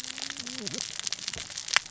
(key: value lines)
label: biophony, cascading saw
recorder: SoundTrap 600 or HydroMoth